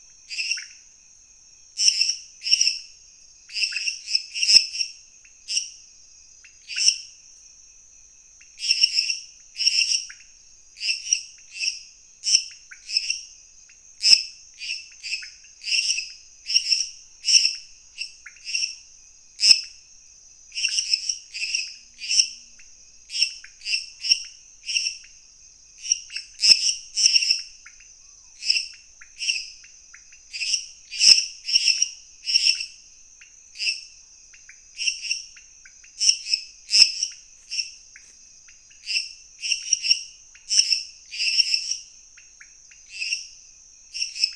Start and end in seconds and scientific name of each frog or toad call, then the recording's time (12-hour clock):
0.2	44.3	Dendropsophus minutus
0.2	44.3	Leptodactylus podicipinus
10:00pm